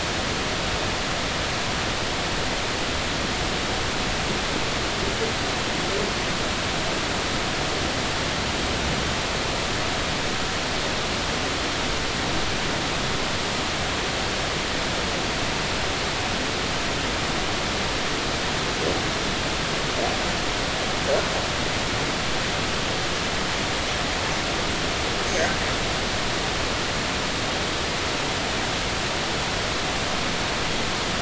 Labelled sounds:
25.2	25.5	humpback whale, 6.1 to 6.5 kHz

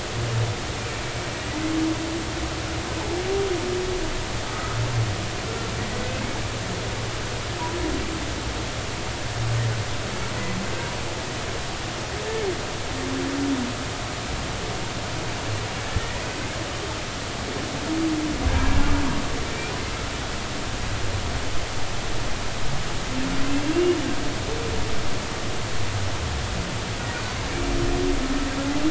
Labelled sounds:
0.8	1.0	humpback whale, 2.2 to 2.5 kHz
4.5	4.8	humpback whale, 1.2 to 1.4 kHz
5.4	5.7	humpback whale, 1.3 to 1.4 kHz
15.9	16.2	humpback whale, 1.7 to 2.0 kHz
18.5	18.8	humpback whale, 1.5 to 1.7 kHz
23.7	24.0	humpback whale, 2.7 to 2.9 kHz

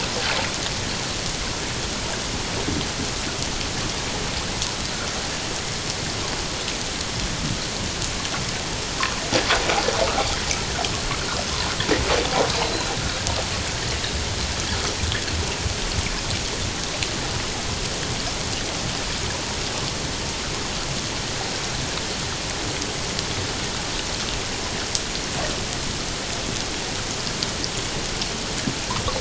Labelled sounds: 12.6	13.0	killer whale, 3.9 to 4.2 kHz

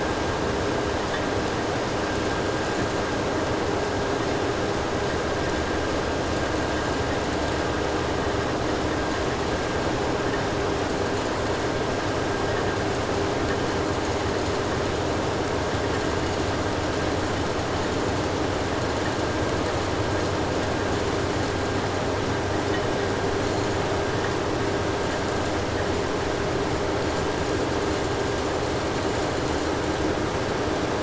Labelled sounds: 2.0	3.0	vessel noise, 5.7 to 8.0 kHz
6.2	7.7	vessel noise, 5.4 to 8.0 kHz
10.7	11.7	vessel noise, 3.9 to 8.0 kHz
12.9	15.4	vessel noise, 3.9 to 8.0 kHz
15.9	22.1	vessel noise, 3.8 to 8.0 kHz
23.3	24.0	vessel noise, 3.8 to 8.0 kHz
25.0	26.0	vessel noise, 3.8 to 8.0 kHz
26.9	30.2	vessel noise, 4.0 to 8.0 kHz

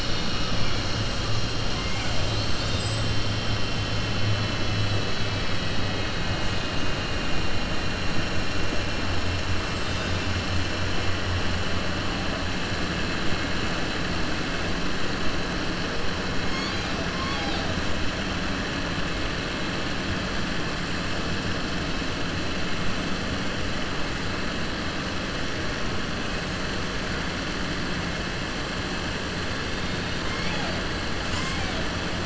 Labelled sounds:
1.7	2.2	killer whale, southern resident, 1.5 to 3.2 kHz
17.1	17.7	killer whale, southern resident, 0.65 to 5.4 kHz

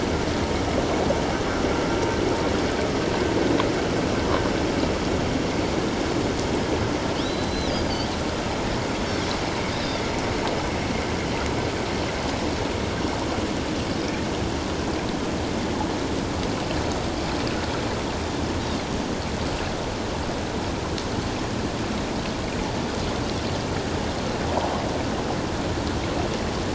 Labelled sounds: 7.2	7.7	Pacific white-sided dolphin, 3.7 to 4.1 kHz
9.8	10.1	Pacific white-sided dolphin, 3.3 to 3.7 kHz

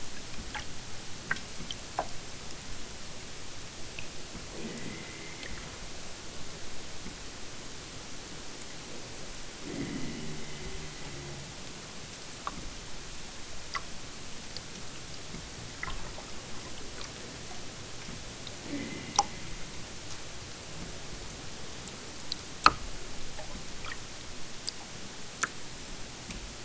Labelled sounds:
4.5	5.5	killer whale, southern Alaska resident, 0 to 4.4 kHz
9.6	11.6	killer whale, southern Alaska resident, 0 to 3.7 kHz
18.6	19.8	killer whale, southern Alaska resident, 0 to 3.5 kHz

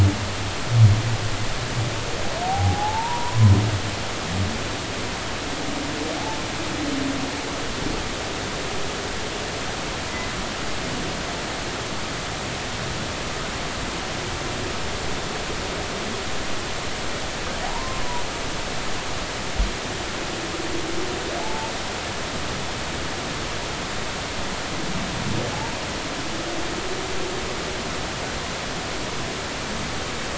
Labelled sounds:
2.5	3.5	humpback whale, 0.80 to 1.1 kHz
6.2	6.4	humpback whale, 0.80 to 0.93 kHz
17.6	18.0	humpback whale, 0.80 to 1.1 kHz
21.4	21.7	humpback whale, 0.83 to 0.96 kHz

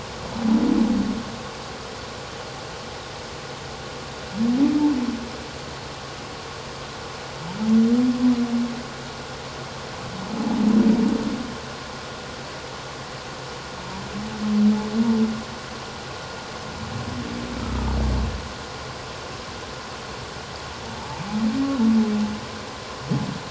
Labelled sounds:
17.6	17.9	humpback whale, 1.2 to 1.4 kHz

